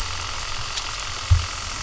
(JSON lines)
{"label": "anthrophony, boat engine", "recorder": "SoundTrap 300"}